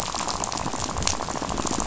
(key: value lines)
label: biophony, rattle
recorder: SoundTrap 500